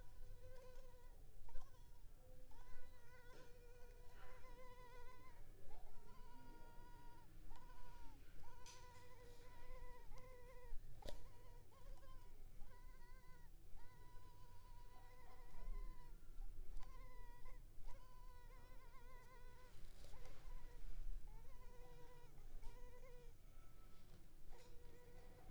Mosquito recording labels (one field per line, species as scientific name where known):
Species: Culex pipiens complex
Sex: female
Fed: unfed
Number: one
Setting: cup